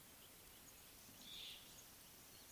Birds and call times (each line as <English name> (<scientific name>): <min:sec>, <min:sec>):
Slate-colored Boubou (Laniarius funebris): 0:01.4